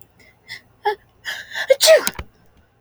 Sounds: Sneeze